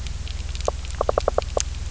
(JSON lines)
{"label": "biophony, knock", "recorder": "SoundTrap 300"}